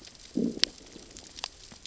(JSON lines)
{"label": "biophony, growl", "recorder": "SoundTrap 600 or HydroMoth"}